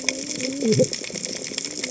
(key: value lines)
label: biophony, cascading saw
recorder: HydroMoth